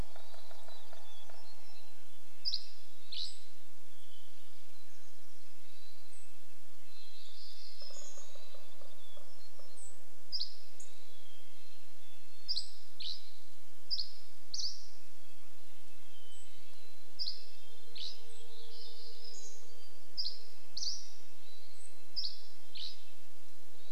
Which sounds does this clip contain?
Hermit Thrush call, unidentified sound, woodpecker drumming, Red-breasted Nuthatch song, Dusky Flycatcher song, Mountain Chickadee song, Mountain Quail call, Dark-eyed Junco call, warbler song, Hermit Thrush song